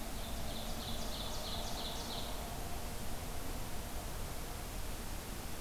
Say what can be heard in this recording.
Ovenbird